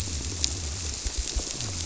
{"label": "biophony", "recorder": "SoundTrap 300"}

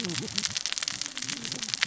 {"label": "biophony, cascading saw", "recorder": "SoundTrap 600 or HydroMoth"}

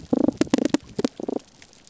{"label": "biophony, damselfish", "recorder": "SoundTrap 300"}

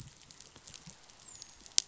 {"label": "biophony, dolphin", "recorder": "SoundTrap 500"}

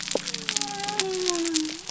{"label": "biophony", "recorder": "SoundTrap 300"}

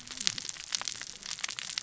{"label": "biophony, cascading saw", "recorder": "SoundTrap 600 or HydroMoth"}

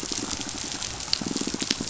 {"label": "biophony, pulse", "recorder": "SoundTrap 500"}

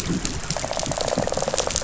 {"label": "biophony, rattle response", "recorder": "SoundTrap 500"}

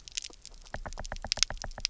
{"label": "biophony, knock", "recorder": "SoundTrap 300"}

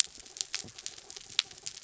{"label": "anthrophony, mechanical", "recorder": "SoundTrap 300"}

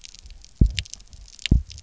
{"label": "biophony, double pulse", "recorder": "SoundTrap 300"}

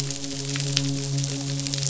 {"label": "biophony, midshipman", "recorder": "SoundTrap 500"}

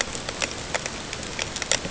{"label": "ambient", "recorder": "HydroMoth"}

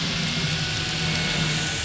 {"label": "anthrophony, boat engine", "recorder": "SoundTrap 500"}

